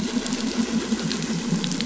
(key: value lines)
label: anthrophony, boat engine
recorder: SoundTrap 500